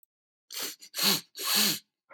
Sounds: Sniff